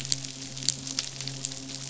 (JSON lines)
{"label": "biophony, midshipman", "recorder": "SoundTrap 500"}